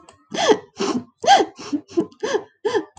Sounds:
Sigh